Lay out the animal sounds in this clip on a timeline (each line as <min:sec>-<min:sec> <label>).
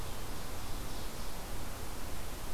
0:00.0-0:01.4 Ovenbird (Seiurus aurocapilla)